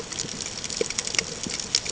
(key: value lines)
label: ambient
recorder: HydroMoth